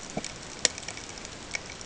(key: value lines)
label: ambient
recorder: HydroMoth